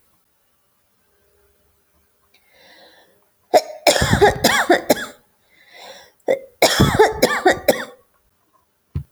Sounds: Cough